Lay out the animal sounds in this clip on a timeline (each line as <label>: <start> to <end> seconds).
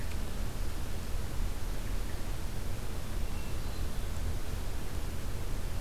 Hermit Thrush (Catharus guttatus): 3.1 to 4.1 seconds